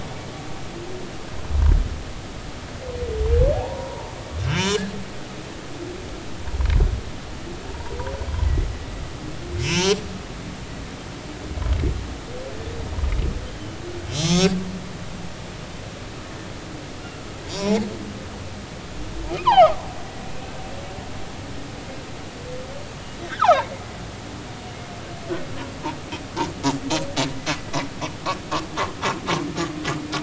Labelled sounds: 3.5	4.9	humpback whale, 0.80 to 3.7 kHz
7.7	8.0	humpback whale, 0.86 to 0.99 kHz
9.6	10.0	humpback whale, 2.5 to 6.0 kHz
14.1	14.6	humpback whale, 1.1 to 6.1 kHz
17.5	17.8	humpback whale, 3.7 to 7.0 kHz
19.4	19.8	humpback whale, 0.80 to 3.5 kHz
23.2	23.7	humpback whale, 0.80 to 2.0 kHz

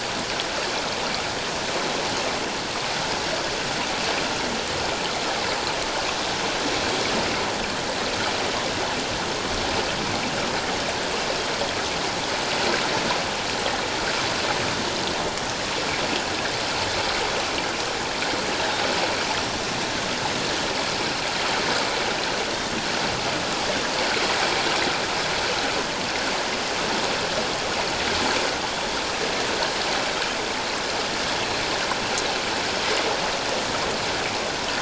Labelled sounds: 18.6	18.8	Pacific white-sided dolphin, 3.6 to 4.0 kHz

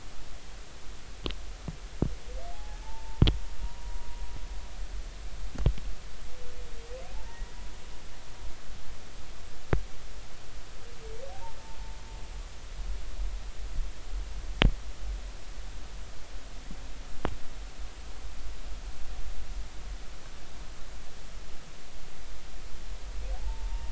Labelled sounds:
2.5	3.2	humpback whale, 0.80 to 0.96 kHz
3.6	4.2	humpback whale, 0.93 to 1.0 kHz
7.1	7.6	humpback whale, 0.80 to 2.0 kHz
11.3	11.6	humpback whale, 0.80 to 0.99 kHz
23.3	23.9	humpback whale, 0.80 to 0.96 kHz

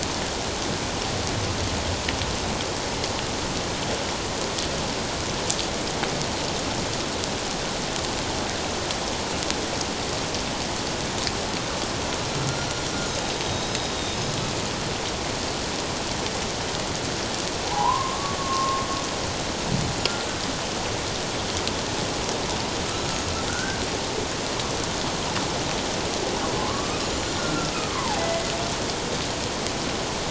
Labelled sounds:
13.3	13.8	humpback whale, 3.7 to 6.3 kHz
14.1	14.4	humpback whale, 5.1 to 5.2 kHz
17.7	18.8	humpback whale, 0.78 to 1.2 kHz
23.0	23.8	humpback whale, 1.3 to 6.8 kHz
26.6	28.5	humpback whale, 0.78 to 7.2 kHz

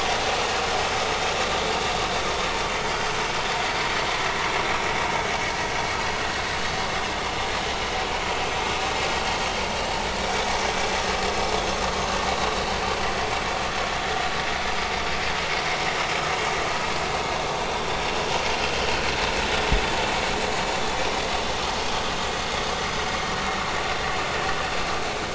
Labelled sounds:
21.8	22.1	vessel noise, 3.1 to 3.3 kHz

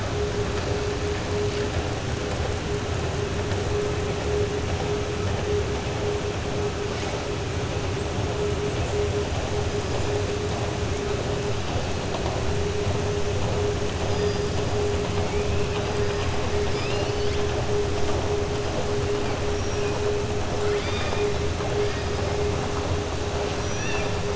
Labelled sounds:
16.6	17.4	killer whale, southern resident, 2.2 to 5.5 kHz
20.5	21.3	killer whale, southern resident, 0.95 to 5.2 kHz

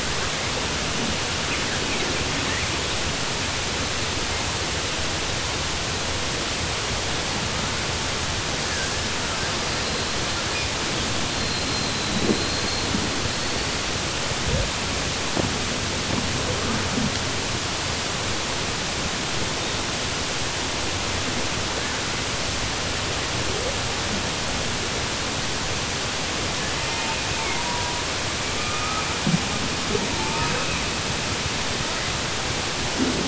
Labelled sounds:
12.3	12.9	killer whale, southern resident, 3.9 to 4.3 kHz

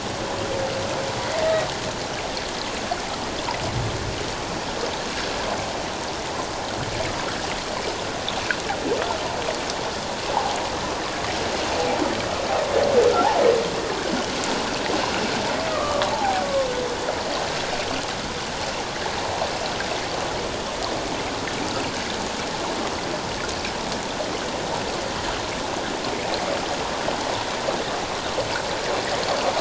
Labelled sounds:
1.4	1.7	humpback whale, 1.8 to 2.0 kHz
15.7	16.4	humpback whale, 0.78 to 1.3 kHz

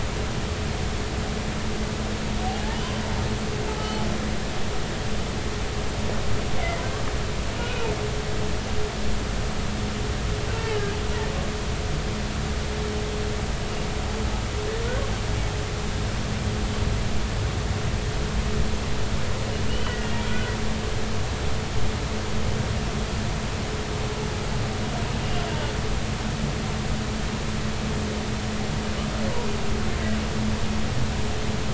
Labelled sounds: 2.7	3.0	humpback whale, 2.9 to 3.2 kHz
3.7	4.0	humpback whale, 2.9 to 3.1 kHz
6.5	6.8	humpback whale, 2.0 to 2.3 kHz
7.7	7.9	humpback whale, 2.4 to 2.6 kHz
19.7	20.1	humpback whale, 1.4 to 3.1 kHz

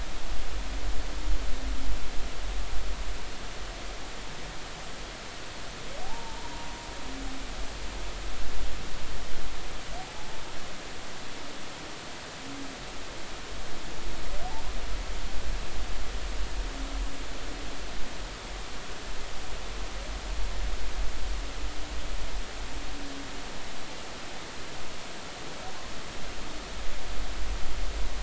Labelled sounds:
6.0	6.5	humpback whale, 0.80 to 1.0 kHz
10.2	10.4	humpback whale, 0.83 to 0.93 kHz

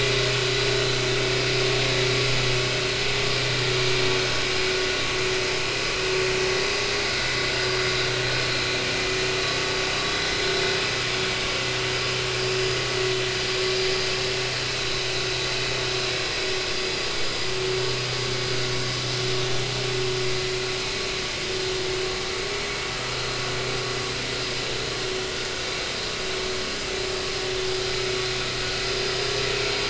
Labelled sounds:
10.1	10.3	vessel noise, 3.3 to 3.6 kHz

